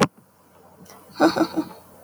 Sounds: Laughter